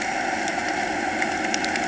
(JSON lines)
{"label": "anthrophony, boat engine", "recorder": "HydroMoth"}